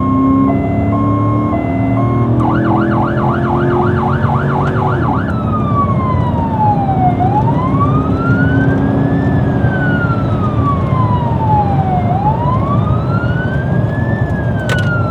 Is the car in a hurry?
yes